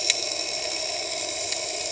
{"label": "anthrophony, boat engine", "recorder": "HydroMoth"}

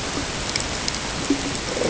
{"label": "ambient", "recorder": "HydroMoth"}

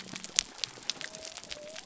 {"label": "biophony", "recorder": "SoundTrap 300"}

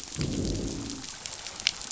{"label": "biophony, growl", "recorder": "SoundTrap 500"}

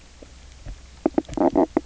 {"label": "biophony, knock croak", "recorder": "SoundTrap 300"}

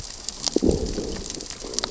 {"label": "biophony, growl", "recorder": "SoundTrap 600 or HydroMoth"}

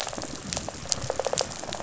{"label": "biophony, rattle response", "recorder": "SoundTrap 500"}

